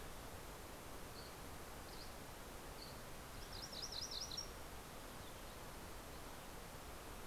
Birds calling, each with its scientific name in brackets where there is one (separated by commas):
Dusky Flycatcher (Empidonax oberholseri), MacGillivray's Warbler (Geothlypis tolmiei)